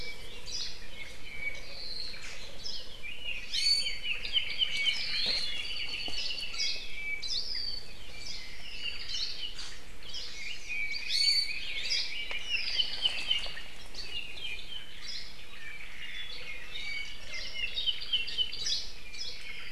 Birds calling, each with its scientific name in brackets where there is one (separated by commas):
Iiwi (Drepanis coccinea), Hawaii Creeper (Loxops mana), Red-billed Leiothrix (Leiothrix lutea), Hawaii Amakihi (Chlorodrepanis virens), Omao (Myadestes obscurus), Apapane (Himatione sanguinea)